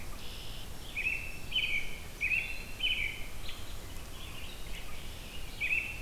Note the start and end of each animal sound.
[0.00, 0.74] Red-winged Blackbird (Agelaius phoeniceus)
[0.00, 6.02] Red-eyed Vireo (Vireo olivaceus)
[0.75, 1.95] Black-throated Green Warbler (Setophaga virens)
[0.75, 3.71] American Robin (Turdus migratorius)
[4.61, 5.53] Red-winged Blackbird (Agelaius phoeniceus)
[5.46, 6.02] American Robin (Turdus migratorius)

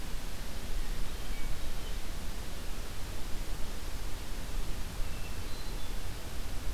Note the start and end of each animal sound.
[4.91, 6.22] Hermit Thrush (Catharus guttatus)

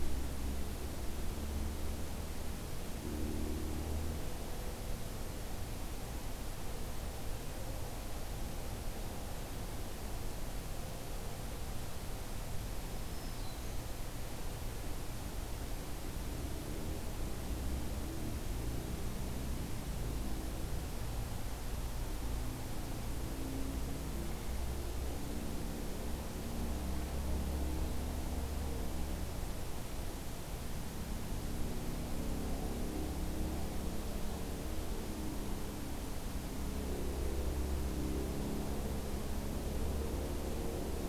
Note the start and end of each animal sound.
[12.82, 13.90] Black-throated Green Warbler (Setophaga virens)

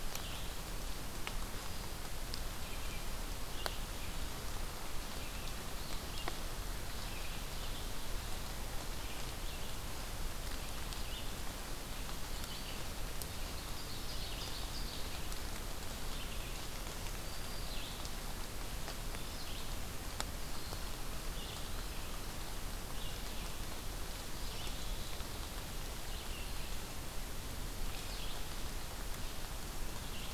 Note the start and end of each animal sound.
[0.00, 7.78] Red-eyed Vireo (Vireo olivaceus)
[8.95, 30.34] Red-eyed Vireo (Vireo olivaceus)
[13.27, 15.36] Ovenbird (Seiurus aurocapilla)
[17.00, 17.84] Black-throated Green Warbler (Setophaga virens)

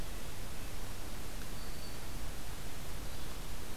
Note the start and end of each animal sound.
[0.69, 2.22] Black-throated Green Warbler (Setophaga virens)
[3.01, 3.37] Yellow-bellied Flycatcher (Empidonax flaviventris)

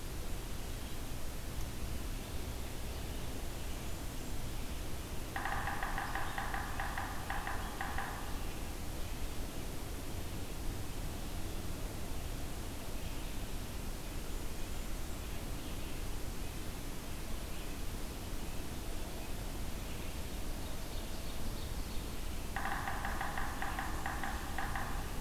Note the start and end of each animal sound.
[5.20, 8.38] Yellow-bellied Sapsucker (Sphyrapicus varius)
[12.69, 25.20] Red-eyed Vireo (Vireo olivaceus)
[20.26, 22.22] Ovenbird (Seiurus aurocapilla)
[22.35, 25.20] Yellow-bellied Sapsucker (Sphyrapicus varius)

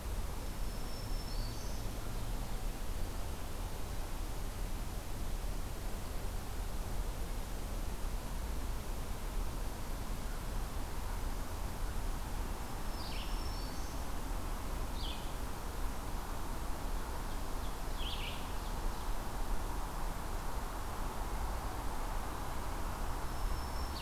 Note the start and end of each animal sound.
[0.22, 1.95] Black-throated Green Warbler (Setophaga virens)
[12.81, 14.02] Black-throated Green Warbler (Setophaga virens)
[12.82, 24.02] Blue-headed Vireo (Vireo solitarius)
[17.11, 19.33] Ovenbird (Seiurus aurocapilla)
[23.04, 24.02] Black-throated Green Warbler (Setophaga virens)

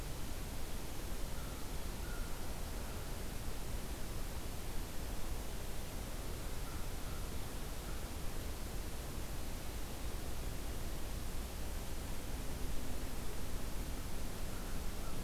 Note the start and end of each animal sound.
[1.19, 2.62] American Crow (Corvus brachyrhynchos)
[6.47, 8.12] American Crow (Corvus brachyrhynchos)
[14.46, 15.23] American Crow (Corvus brachyrhynchos)

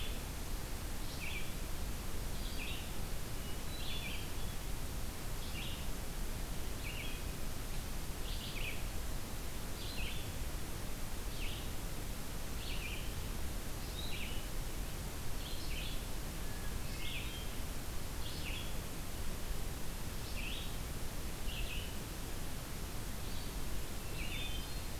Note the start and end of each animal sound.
[0.00, 24.99] Red-eyed Vireo (Vireo olivaceus)
[3.29, 4.94] Hermit Thrush (Catharus guttatus)
[16.40, 17.77] Hermit Thrush (Catharus guttatus)
[23.93, 24.99] Hermit Thrush (Catharus guttatus)

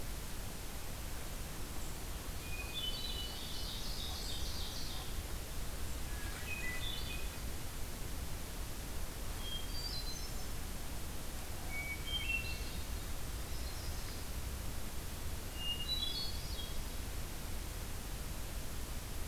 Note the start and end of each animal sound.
[2.35, 3.42] Hermit Thrush (Catharus guttatus)
[2.82, 5.21] Ovenbird (Seiurus aurocapilla)
[5.85, 7.28] Hermit Thrush (Catharus guttatus)
[9.09, 10.70] Hermit Thrush (Catharus guttatus)
[11.67, 12.86] Hermit Thrush (Catharus guttatus)
[13.11, 14.57] Yellow-rumped Warbler (Setophaga coronata)
[15.44, 17.11] Hermit Thrush (Catharus guttatus)

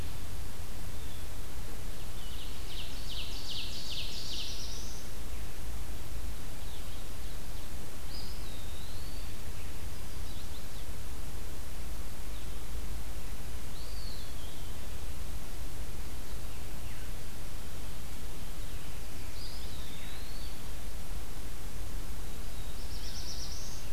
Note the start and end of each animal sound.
[0.00, 1.30] Blue Jay (Cyanocitta cristata)
[0.00, 23.41] Blue-headed Vireo (Vireo solitarius)
[1.77, 4.65] Ovenbird (Seiurus aurocapilla)
[3.87, 5.00] Black-throated Blue Warbler (Setophaga caerulescens)
[8.00, 9.38] Eastern Wood-Pewee (Contopus virens)
[9.73, 10.96] Chestnut-sided Warbler (Setophaga pensylvanica)
[13.59, 14.66] Eastern Wood-Pewee (Contopus virens)
[19.21, 20.65] Eastern Wood-Pewee (Contopus virens)
[22.27, 23.92] Black-throated Blue Warbler (Setophaga caerulescens)

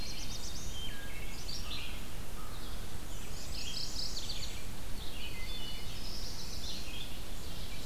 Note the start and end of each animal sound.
[0.00, 0.82] Black-capped Chickadee (Poecile atricapillus)
[0.00, 0.86] Black-throated Blue Warbler (Setophaga caerulescens)
[0.00, 7.86] Red-eyed Vireo (Vireo olivaceus)
[0.58, 1.45] Wood Thrush (Hylocichla mustelina)
[1.59, 2.90] American Crow (Corvus brachyrhynchos)
[2.96, 4.69] Black-and-white Warbler (Mniotilta varia)
[3.25, 4.52] Mourning Warbler (Geothlypis philadelphia)
[5.10, 6.07] Wood Thrush (Hylocichla mustelina)
[5.74, 7.01] Black-throated Blue Warbler (Setophaga caerulescens)
[7.13, 7.86] Ovenbird (Seiurus aurocapilla)

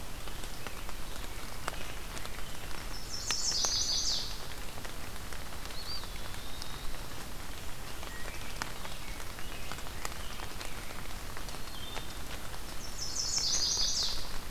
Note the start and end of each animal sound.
[2.88, 4.44] Chestnut-sided Warbler (Setophaga pensylvanica)
[5.61, 6.67] Eastern Wood-Pewee (Contopus virens)
[7.78, 8.58] Wood Thrush (Hylocichla mustelina)
[8.68, 11.36] Rose-breasted Grosbeak (Pheucticus ludovicianus)
[11.47, 12.16] Wood Thrush (Hylocichla mustelina)
[12.60, 14.42] Chestnut-sided Warbler (Setophaga pensylvanica)

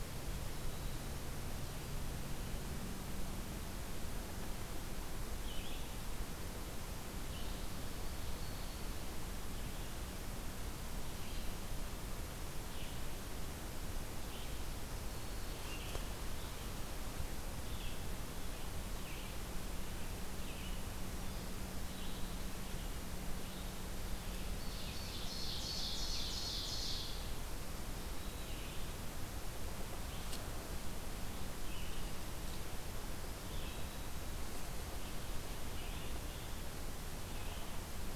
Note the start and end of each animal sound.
[5.39, 24.61] Red-eyed Vireo (Vireo olivaceus)
[14.90, 15.85] Black-throated Green Warbler (Setophaga virens)
[24.46, 27.50] Ovenbird (Seiurus aurocapilla)
[27.91, 38.15] Red-eyed Vireo (Vireo olivaceus)
[27.93, 28.82] Black-throated Green Warbler (Setophaga virens)
[33.83, 34.48] Black-throated Green Warbler (Setophaga virens)

